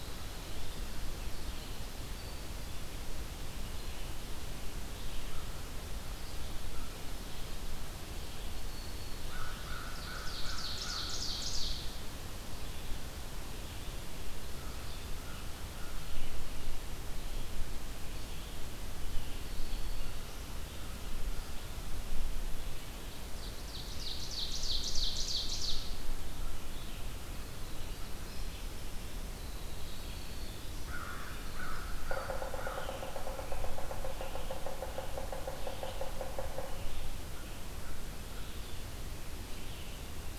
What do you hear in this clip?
Winter Wren, Red-eyed Vireo, Black-throated Green Warbler, American Crow, Ovenbird, Yellow-bellied Sapsucker